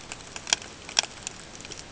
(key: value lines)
label: ambient
recorder: HydroMoth